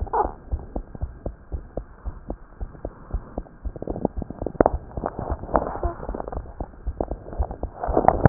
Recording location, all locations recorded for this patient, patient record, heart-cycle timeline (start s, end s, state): aortic valve (AV)
aortic valve (AV)+pulmonary valve (PV)+tricuspid valve (TV)+mitral valve (MV)
#Age: Child
#Sex: Male
#Height: 75.0 cm
#Weight: 10.1 kg
#Pregnancy status: False
#Murmur: Absent
#Murmur locations: nan
#Most audible location: nan
#Systolic murmur timing: nan
#Systolic murmur shape: nan
#Systolic murmur grading: nan
#Systolic murmur pitch: nan
#Systolic murmur quality: nan
#Diastolic murmur timing: nan
#Diastolic murmur shape: nan
#Diastolic murmur grading: nan
#Diastolic murmur pitch: nan
#Diastolic murmur quality: nan
#Outcome: Abnormal
#Campaign: 2015 screening campaign
0.00	0.50	unannotated
0.50	0.64	S1
0.64	0.74	systole
0.74	0.84	S2
0.84	1.00	diastole
1.00	1.14	S1
1.14	1.22	systole
1.22	1.34	S2
1.34	1.51	diastole
1.51	1.63	S1
1.63	1.75	systole
1.75	1.85	S2
1.85	2.04	diastole
2.04	2.14	S1
2.14	2.28	systole
2.28	2.38	S2
2.38	2.59	diastole
2.59	2.70	S1
2.70	2.82	systole
2.82	2.92	S2
2.92	3.10	diastole
3.10	3.22	S1
3.22	3.36	systole
3.36	3.46	S2
3.46	3.64	diastole
3.64	3.74	S1
3.74	8.29	unannotated